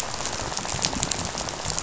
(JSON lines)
{"label": "biophony, rattle", "recorder": "SoundTrap 500"}